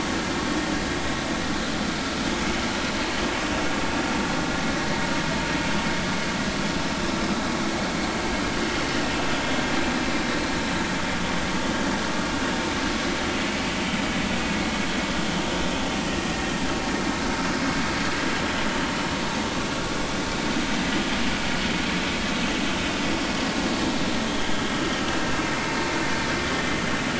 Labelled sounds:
24.3	24.6	vessel noise, 3.1 to 3.4 kHz

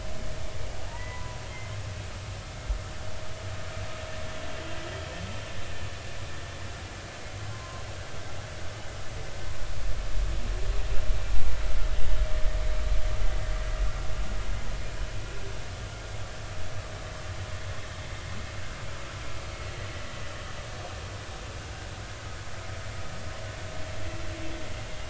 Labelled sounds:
0.9	1.4	humpback whale, 0.86 to 2.1 kHz
7.5	7.8	humpback whale, 0.99 to 1.1 kHz

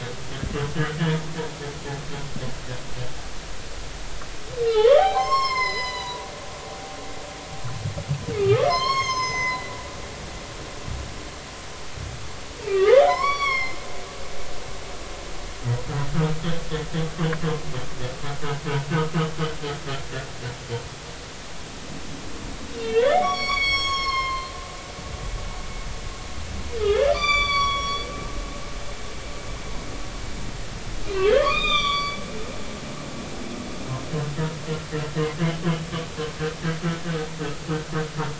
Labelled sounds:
4.6	6.3	humpback whale, 0.80 to 7.6 kHz
8.4	9.7	humpback whale, 0.90 to 6.6 kHz
12.7	13.8	humpback whale, 0.90 to 5.7 kHz
22.8	24.5	humpback whale, 0.99 to 7.8 kHz
26.8	28.1	humpback whale, 0.96 to 7.1 kHz
31.1	32.2	humpback whale, 0.99 to 6.1 kHz

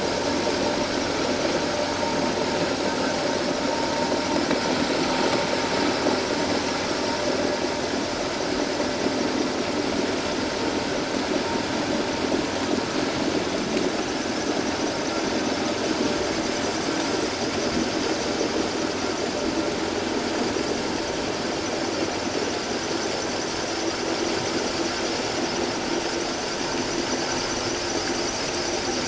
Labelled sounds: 26.2	26.5	vessel noise, 6.1 to 6.3 kHz

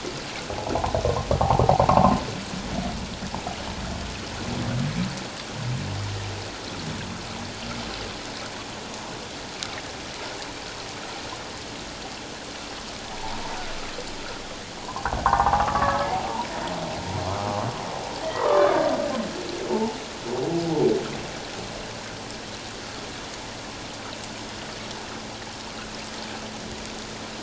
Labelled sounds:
1.9	2.2	humpback whale, 0.78 to 1.2 kHz
13.1	13.4	humpback whale, 0.78 to 1.0 kHz
14.8	16.0	humpback whale, 0.78 to 1.3 kHz
18.2	18.8	humpback whale, 0.91 to 2.0 kHz

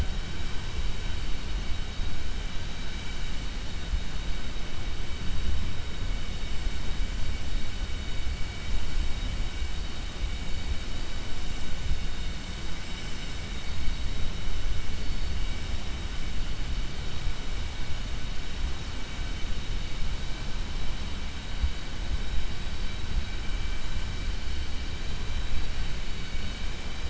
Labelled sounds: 26.0	26.6	vessel noise, 1.5 to 5.2 kHz

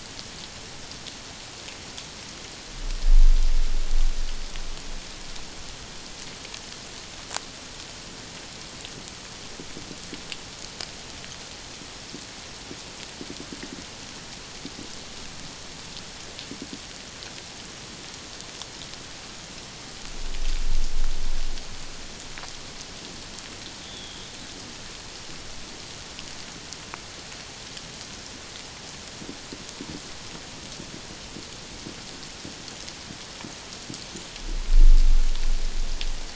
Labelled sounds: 23.8	24.2	humpback whale, 3.2 to 3.7 kHz

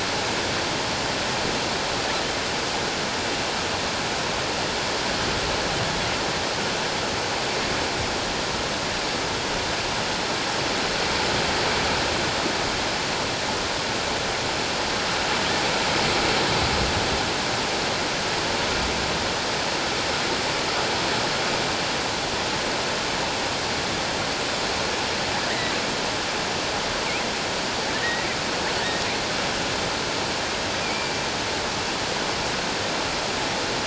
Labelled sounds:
25.5	25.7	killer whale, offshore, 1.8 to 2.1 kHz
27.9	28.3	killer whale, offshore, 1.7 to 2.0 kHz
30.8	31.1	killer whale, offshore, 2.2 to 2.5 kHz

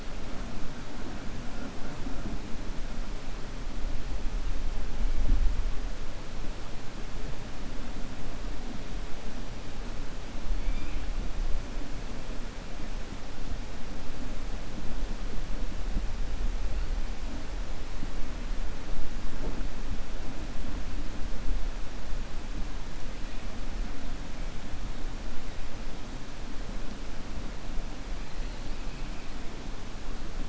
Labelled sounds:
10.6	11.0	killer whale, 1.7 to 3.6 kHz

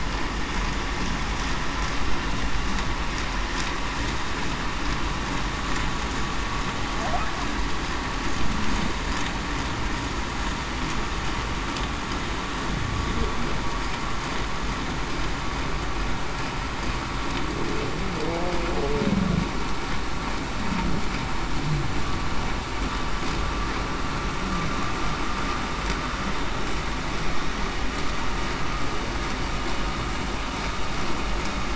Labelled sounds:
18.1	18.5	humpback whale, 0.45 to 0.56 kHz

